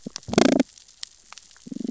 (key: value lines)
label: biophony, damselfish
recorder: SoundTrap 600 or HydroMoth